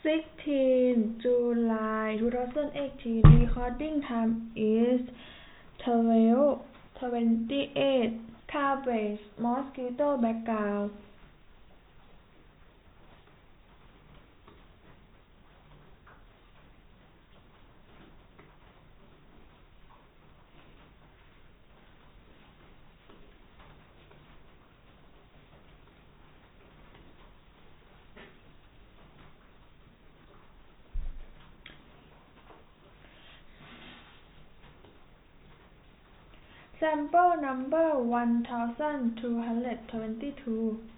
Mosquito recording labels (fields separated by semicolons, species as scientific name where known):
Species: no mosquito; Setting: cup